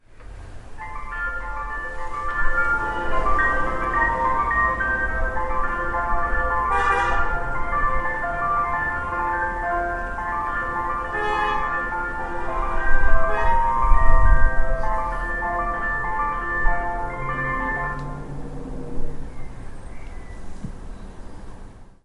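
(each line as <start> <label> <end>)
0.0 Continuous distant traffic noise. 22.0
0.2 Rhythmic sound in a steady pattern echoing outdoors. 18.7
6.6 A car horn sounds in the distance. 7.8
11.5 A car horn sounds multiple times in the distance. 15.4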